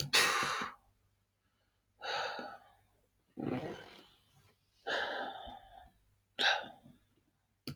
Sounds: Sigh